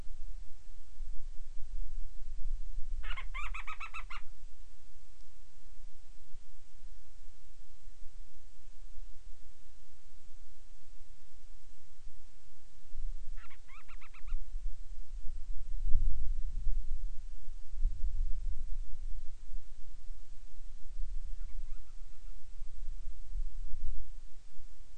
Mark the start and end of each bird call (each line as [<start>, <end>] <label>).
[2.89, 4.29] Band-rumped Storm-Petrel (Hydrobates castro)
[13.29, 14.49] Band-rumped Storm-Petrel (Hydrobates castro)